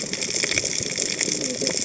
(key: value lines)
label: biophony, cascading saw
recorder: HydroMoth